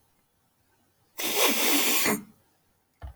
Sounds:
Sniff